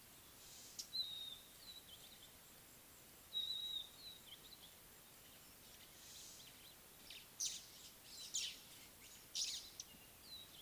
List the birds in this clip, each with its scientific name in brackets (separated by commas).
White-browed Sparrow-Weaver (Plocepasser mahali), Red-backed Scrub-Robin (Cercotrichas leucophrys)